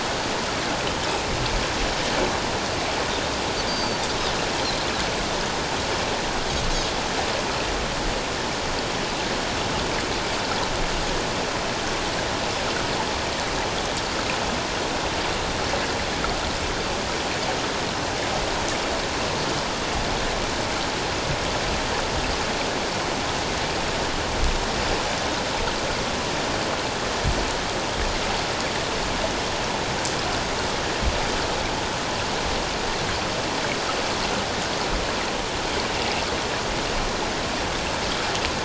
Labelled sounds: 3.7	4.0	Pacific white-sided dolphin, 4.5 to 6.3 kHz

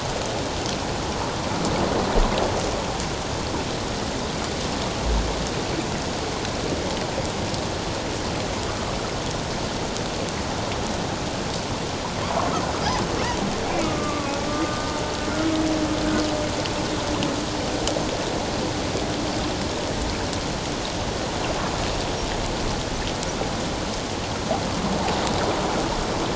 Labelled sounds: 13.6	14.9	humpback whale, 1.1 to 2.5 kHz

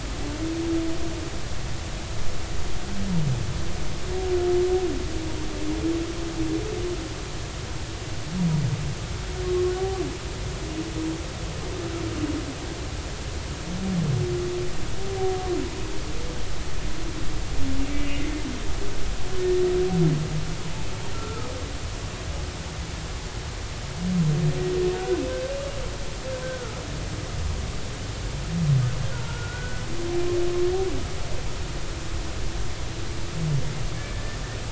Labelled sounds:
9.8	10.0	humpback whale, 1.1 to 1.2 kHz
18.0	18.2	humpback whale, 2.7 to 2.9 kHz
21.1	21.5	humpback whale, 1.2 to 1.5 kHz
25.0	25.2	humpback whale, 1.4 to 1.6 kHz
26.4	26.8	humpback whale, 1.2 to 1.6 kHz
29.1	29.8	humpback whale, 0.86 to 1.5 kHz
34.1	34.4	humpback whale, 1.7 to 1.9 kHz

